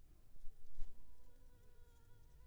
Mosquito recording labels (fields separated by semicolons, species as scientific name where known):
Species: Anopheles funestus s.s.; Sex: female; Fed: unfed; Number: one; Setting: cup